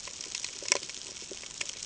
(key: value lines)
label: ambient
recorder: HydroMoth